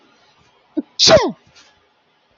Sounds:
Sneeze